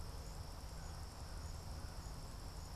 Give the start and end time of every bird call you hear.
[0.00, 2.75] American Crow (Corvus brachyrhynchos)

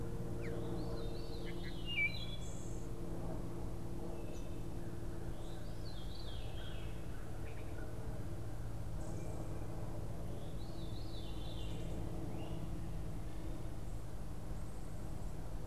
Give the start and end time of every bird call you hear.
[0.00, 12.67] Wood Thrush (Hylocichla mustelina)
[0.00, 15.66] Veery (Catharus fuscescens)

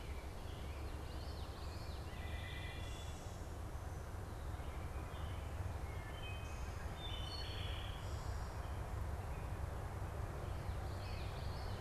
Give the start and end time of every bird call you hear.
[0.00, 1.21] American Robin (Turdus migratorius)
[0.00, 3.21] Wood Thrush (Hylocichla mustelina)
[0.91, 2.11] Common Yellowthroat (Geothlypis trichas)
[5.21, 11.80] Wood Thrush (Hylocichla mustelina)
[10.71, 11.80] Common Yellowthroat (Geothlypis trichas)

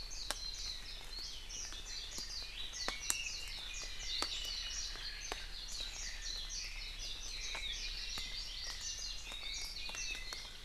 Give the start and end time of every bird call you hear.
[6.56, 10.56] Apapane (Himatione sanguinea)

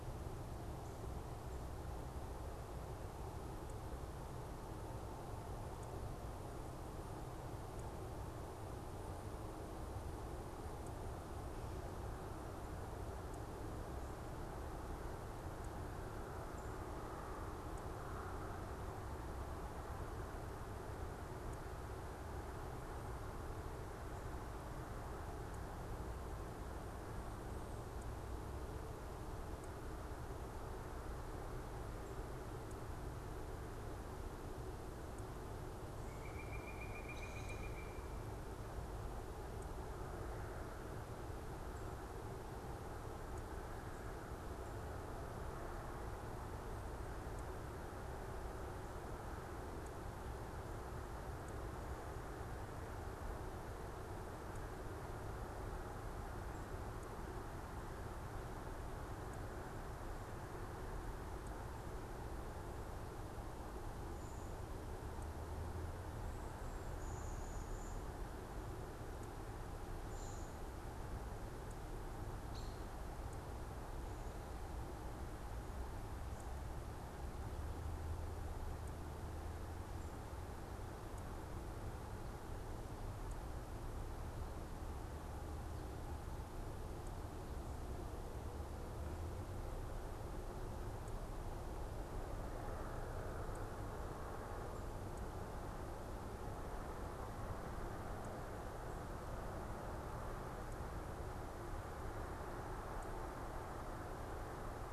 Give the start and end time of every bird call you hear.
[35.88, 38.18] Pileated Woodpecker (Dryocopus pileatus)
[66.88, 70.68] Cedar Waxwing (Bombycilla cedrorum)
[72.38, 72.78] American Robin (Turdus migratorius)

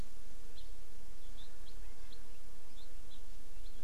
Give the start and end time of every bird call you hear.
[0.51, 0.61] Hawaii Amakihi (Chlorodrepanis virens)
[3.11, 3.21] Hawaii Amakihi (Chlorodrepanis virens)

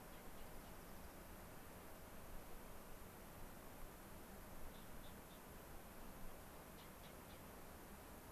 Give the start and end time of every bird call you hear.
[0.00, 1.30] Dark-eyed Junco (Junco hyemalis)

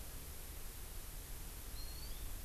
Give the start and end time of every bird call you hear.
[1.70, 2.40] Hawaii Amakihi (Chlorodrepanis virens)

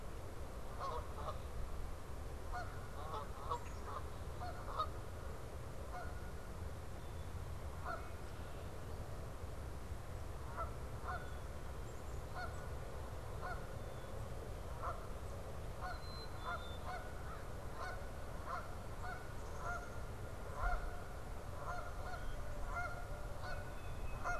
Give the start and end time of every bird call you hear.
[0.00, 24.40] Canada Goose (Branta canadensis)
[3.33, 4.24] Black-capped Chickadee (Poecile atricapillus)
[6.83, 7.43] Black-capped Chickadee (Poecile atricapillus)
[7.74, 8.73] Red-winged Blackbird (Agelaius phoeniceus)
[10.73, 11.73] Black-capped Chickadee (Poecile atricapillus)
[13.54, 14.44] Black-capped Chickadee (Poecile atricapillus)
[15.63, 16.84] Black-capped Chickadee (Poecile atricapillus)
[17.04, 18.14] American Crow (Corvus brachyrhynchos)
[19.34, 20.04] Black-capped Chickadee (Poecile atricapillus)
[23.34, 24.40] Tufted Titmouse (Baeolophus bicolor)

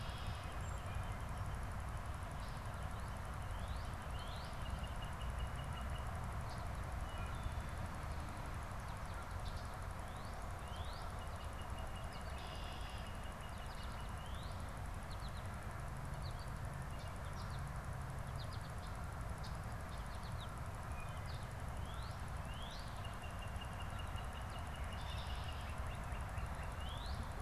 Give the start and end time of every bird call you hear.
[0.00, 0.57] Red-winged Blackbird (Agelaius phoeniceus)
[0.00, 2.08] Northern Flicker (Colaptes auratus)
[3.27, 6.28] Northern Cardinal (Cardinalis cardinalis)
[9.78, 14.78] Northern Cardinal (Cardinalis cardinalis)
[11.88, 13.18] Red-winged Blackbird (Agelaius phoeniceus)
[14.88, 17.88] American Goldfinch (Spinus tristis)
[18.27, 20.77] American Goldfinch (Spinus tristis)
[21.88, 27.38] Northern Cardinal (Cardinalis cardinalis)

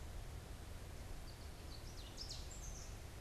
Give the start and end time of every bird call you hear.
[0.96, 3.16] Ovenbird (Seiurus aurocapilla)

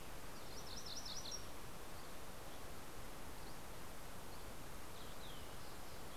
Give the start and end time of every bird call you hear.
[0.00, 2.00] MacGillivray's Warbler (Geothlypis tolmiei)
[3.90, 6.16] Fox Sparrow (Passerella iliaca)

